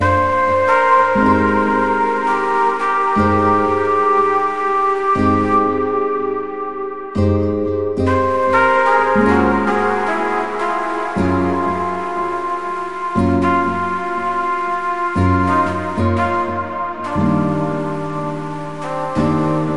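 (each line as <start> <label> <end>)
0.0 A trumpet is playing jazz music. 7.2
7.1 A guitar plays smooth jazz. 8.0
8.0 A guitar plays smooth jazz with short pauses. 19.8
8.0 A trumpet is playing jazz music. 19.8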